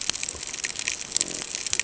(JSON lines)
{"label": "ambient", "recorder": "HydroMoth"}